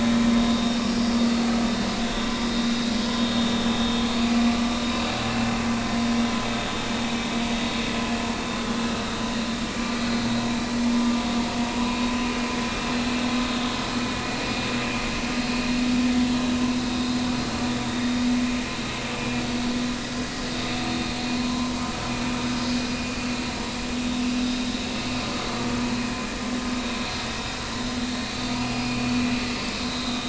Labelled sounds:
0.5	0.8	vessel noise, 3.6 to 3.7 kHz
4.2	5.1	vessel noise, 2.4 to 3.9 kHz
9.8	10.2	vessel noise, 1.2 to 4.3 kHz
16.8	17.1	vessel noise, 3.7 to 3.9 kHz
17.9	18.2	vessel noise, 3.5 to 3.7 kHz
19.2	19.4	vessel noise, 2.3 to 2.5 kHz
21.4	21.7	vessel noise, 0.93 to 1.2 kHz
25.2	25.6	vessel noise, 4.4 to 4.5 kHz
28.3	29.1	vessel noise, 2.2 to 4.7 kHz
29.5	30.2	vessel noise, 3.6 to 5.1 kHz

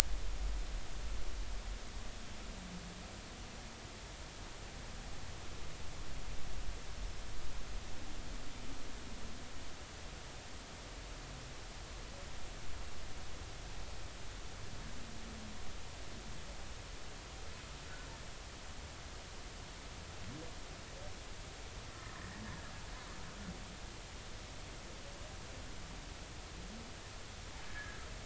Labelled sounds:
22.1	22.4	humpback whale, 1.7 to 1.9 kHz
27.6	28.0	humpback whale, 1.6 to 1.8 kHz

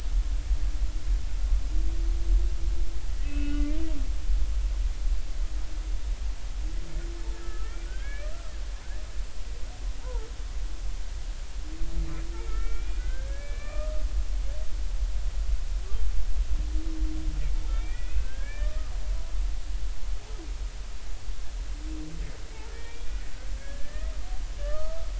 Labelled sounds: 3.1	3.8	humpback whale, 1.4 to 2.7 kHz
7.4	8.5	humpback whale, 1.2 to 2.4 kHz
10.0	10.3	humpback whale, 0.80 to 1.5 kHz
12.4	14.0	humpback whale, 1.1 to 2.6 kHz
17.7	18.9	humpback whale, 1.1 to 2.6 kHz
22.7	24.1	humpback whale, 1.6 to 2.5 kHz
24.6	25.1	humpback whale, 1.1 to 1.3 kHz

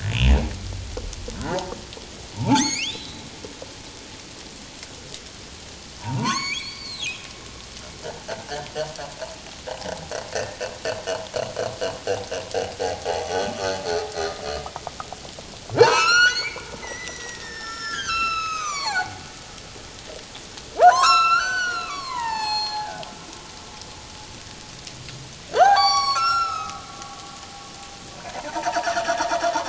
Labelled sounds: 1.4	3.3	humpback whale, 0.78 to 7.2 kHz
6.0	7.3	humpback whale, 0.78 to 7.0 kHz
8.3	8.7	humpback whale, 1.4 to 1.9 kHz
10.3	10.6	humpback whale, 1.7 to 1.9 kHz
13.5	13.8	humpback whale, 1.1 to 1.3 kHz
15.8	19.2	humpback whale, 0.78 to 7.3 kHz
20.8	23.0	humpback whale, 0.78 to 7.9 kHz
25.5	26.8	humpback whale, 0.78 to 8.0 kHz
28.2	28.9	humpback whale, 0.84 to 1.9 kHz

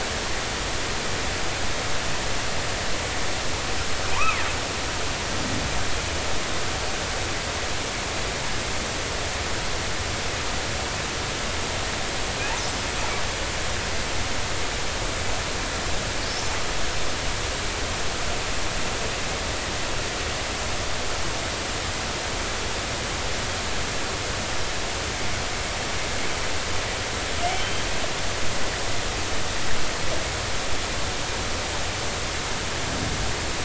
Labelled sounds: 4.2	4.4	killer whale, northern resident, G clan, 2.0 to 2.7 kHz
27.6	27.8	killer whale, northern resident, G clan, 3.0 to 3.2 kHz

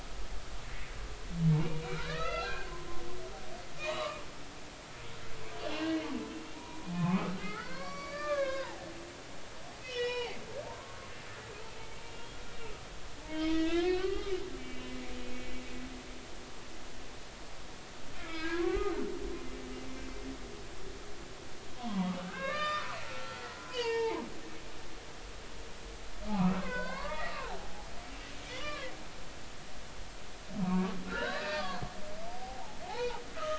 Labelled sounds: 1.6	2.7	humpback whale, 0.90 to 6.3 kHz
3.8	4.2	humpback whale, 0.93 to 4.0 kHz
5.6	6.1	humpback whale, 2.7 to 3.1 kHz
6.5	8.8	humpback whale, 0.80 to 5.1 kHz
9.8	10.4	humpback whale, 0.80 to 5.7 kHz
10.7	11.0	humpback whale, 0.86 to 1.2 kHz
12.0	12.8	humpback whale, 1.2 to 3.4 kHz
13.2	14.9	humpback whale, 0.83 to 5.6 kHz
18.1	18.9	humpback whale, 0.90 to 2.5 kHz
21.8	24.2	humpback whale, 0.80 to 6.6 kHz
26.2	27.5	humpback whale, 0.90 to 4.6 kHz
28.5	28.9	humpback whale, 1.1 to 3.6 kHz
30.7	31.8	humpback whale, 0.86 to 4.2 kHz
32.3	33.5	humpback whale, 0.80 to 4.0 kHz

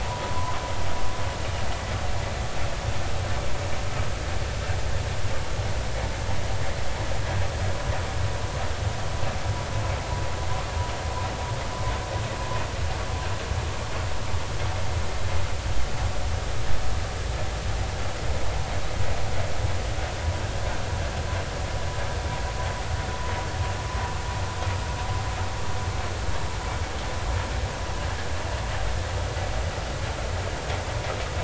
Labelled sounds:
0.3	0.6	vessel noise, 0.96 to 1.1 kHz

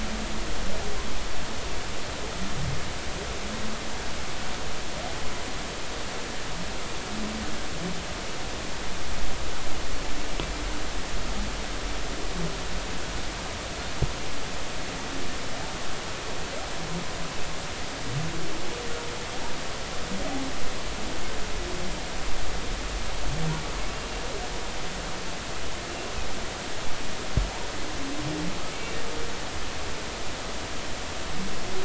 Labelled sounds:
28.7	29.0	humpback whale, 2.2 to 2.3 kHz

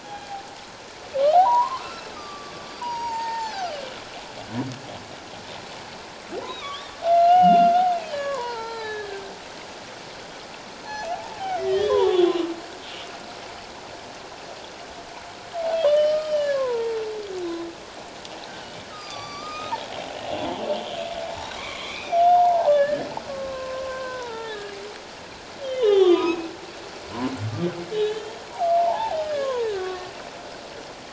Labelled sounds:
0.0	0.4	humpback whale, 0.78 to 3.4 kHz
1.3	3.7	humpback whale, 0.78 to 6.7 kHz
6.4	7.8	humpback whale, 1.1 to 4.0 kHz
8.1	9.3	humpback whale, 0.81 to 5.1 kHz
10.9	12.4	humpback whale, 0.78 to 6.0 kHz
15.9	17.0	humpback whale, 0.88 to 5.6 kHz
17.4	17.7	humpback whale, 3.7 to 3.9 kHz
18.9	19.8	humpback whale, 1.1 to 6.3 kHz
20.2	21.0	humpback whale, 0.81 to 3.5 kHz
21.6	24.7	humpback whale, 0.78 to 3.7 kHz
25.6	26.5	humpback whale, 0.78 to 6.8 kHz
27.9	28.3	humpback whale, 1.6 to 3.3 kHz
28.7	30.1	humpback whale, 0.78 to 1.9 kHz

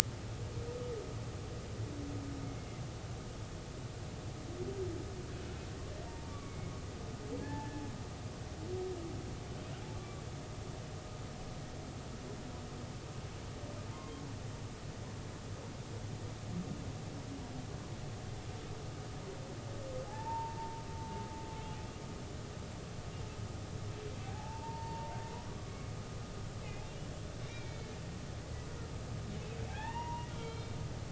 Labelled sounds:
2.6	2.8	humpback whale, 2.0 to 2.2 kHz
6.0	6.7	humpback whale, 0.86 to 2.3 kHz
7.4	7.8	humpback whale, 0.80 to 1.8 kHz
10.0	10.2	humpback whale, 1.1 to 1.2 kHz
20.1	20.8	humpback whale, 0.80 to 0.99 kHz
24.2	25.1	humpback whale, 0.80 to 0.99 kHz
25.6	25.9	humpback whale, 1.1 to 2.2 kHz
26.8	27.9	humpback whale, 2.2 to 3.0 kHz
29.7	30.7	humpback whale, 0.80 to 4.2 kHz

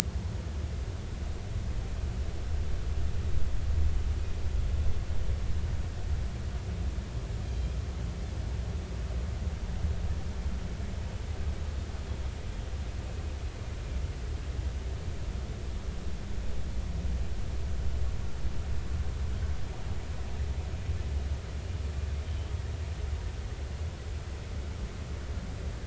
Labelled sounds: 7.5	7.8	Pacific white-sided dolphin, 3.1 to 3.4 kHz

